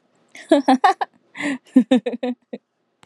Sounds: Laughter